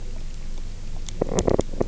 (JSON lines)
{"label": "biophony, knock croak", "recorder": "SoundTrap 300"}